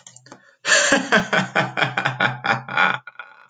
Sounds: Laughter